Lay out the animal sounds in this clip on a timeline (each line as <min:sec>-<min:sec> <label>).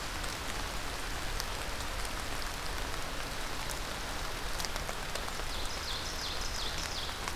0:05.1-0:07.4 Ovenbird (Seiurus aurocapilla)